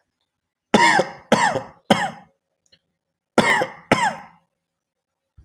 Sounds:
Cough